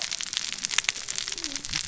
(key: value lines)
label: biophony, cascading saw
recorder: SoundTrap 600 or HydroMoth